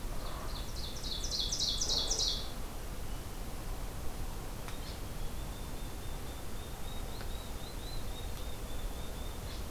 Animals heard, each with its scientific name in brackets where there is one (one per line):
unidentified call
Ovenbird (Seiurus aurocapilla)